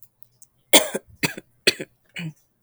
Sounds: Cough